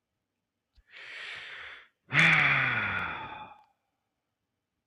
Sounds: Sigh